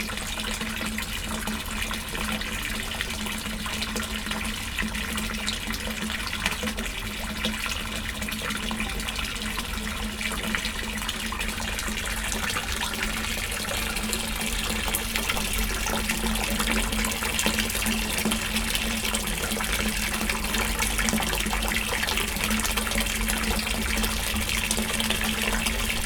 In what direction is the water moving?
down